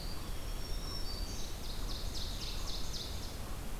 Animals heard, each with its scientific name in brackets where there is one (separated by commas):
Eastern Wood-Pewee (Contopus virens), Red-eyed Vireo (Vireo olivaceus), Black-throated Green Warbler (Setophaga virens), Ovenbird (Seiurus aurocapilla)